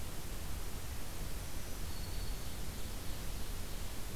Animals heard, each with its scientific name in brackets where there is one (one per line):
Ovenbird (Seiurus aurocapilla)
Black-throated Green Warbler (Setophaga virens)